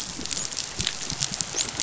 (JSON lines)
{"label": "biophony, dolphin", "recorder": "SoundTrap 500"}